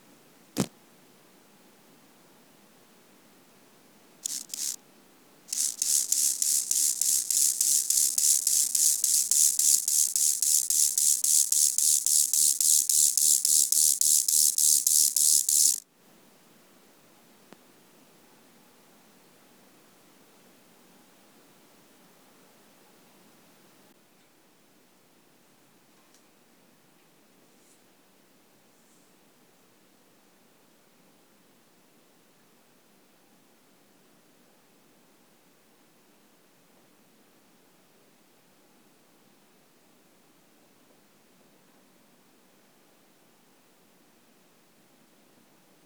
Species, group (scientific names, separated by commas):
Chorthippus mollis, Orthoptera